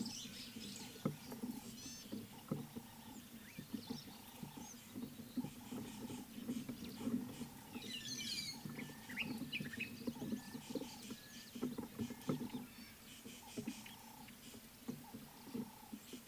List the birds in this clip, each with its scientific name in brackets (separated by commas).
White-headed Buffalo-Weaver (Dinemellia dinemelli), Rattling Cisticola (Cisticola chiniana), Gray-backed Camaroptera (Camaroptera brevicaudata), Ring-necked Dove (Streptopelia capicola)